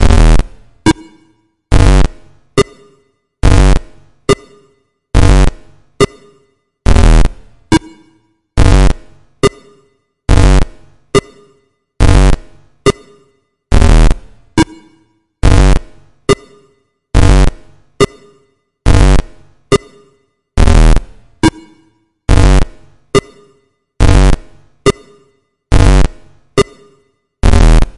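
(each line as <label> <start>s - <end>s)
Rhythmic electronic beeping with a repeating pitch pattern. 0.0s - 28.0s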